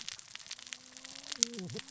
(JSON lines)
{"label": "biophony, cascading saw", "recorder": "SoundTrap 600 or HydroMoth"}